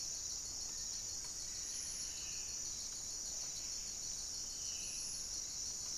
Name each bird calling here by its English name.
Black-spotted Bare-eye, Buff-breasted Wren, Black-faced Antthrush